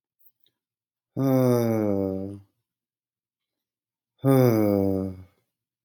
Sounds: Sigh